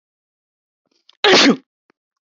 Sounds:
Sneeze